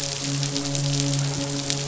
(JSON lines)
{"label": "biophony, midshipman", "recorder": "SoundTrap 500"}